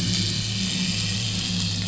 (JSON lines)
{"label": "anthrophony, boat engine", "recorder": "SoundTrap 500"}